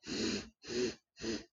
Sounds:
Sniff